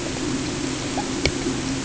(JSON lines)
{"label": "anthrophony, boat engine", "recorder": "HydroMoth"}